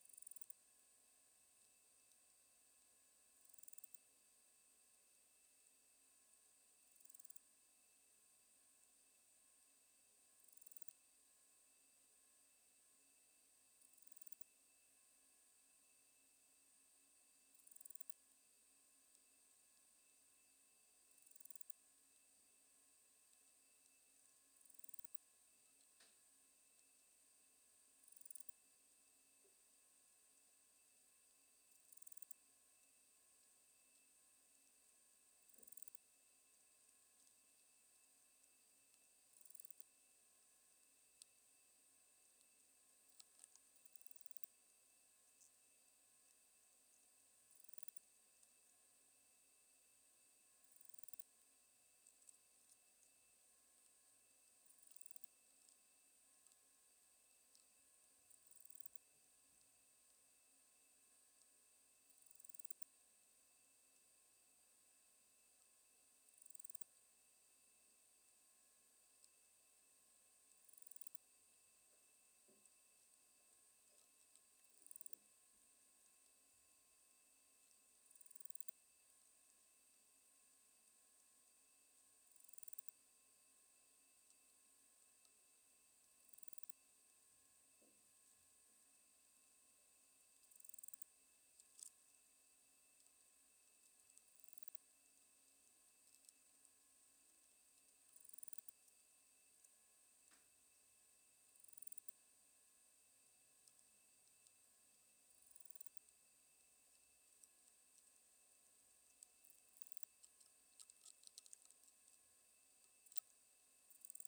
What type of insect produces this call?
orthopteran